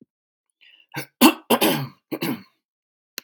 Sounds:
Throat clearing